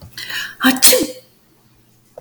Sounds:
Sneeze